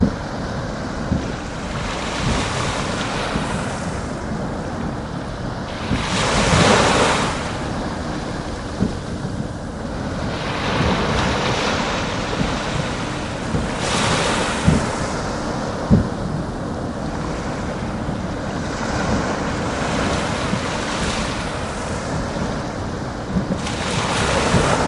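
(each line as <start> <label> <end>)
0.0 The quiet, repetitive sound of flowing water. 24.8
1.1 A large wave on the beach fades away quietly. 4.8
5.9 A large wave rapidly increases in volume on the beach. 8.0
9.8 The sound of water waves on the beach gradually increasing. 16.3
18.4 The loud, turbulent, and calming sound of waves on the beach. 22.9
23.4 A wave on the beach rises loudly and rapidly. 24.9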